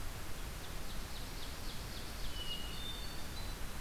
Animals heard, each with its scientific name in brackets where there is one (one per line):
Ovenbird (Seiurus aurocapilla)
Hermit Thrush (Catharus guttatus)